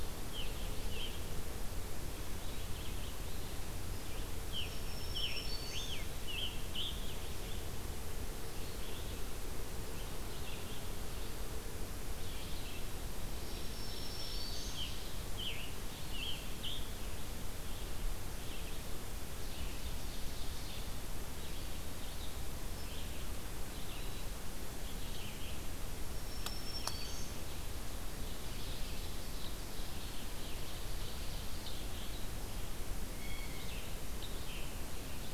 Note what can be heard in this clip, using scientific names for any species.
Piranga olivacea, Vireo olivaceus, Setophaga virens, Seiurus aurocapilla, Cyanocitta cristata